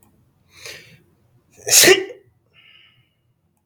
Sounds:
Sneeze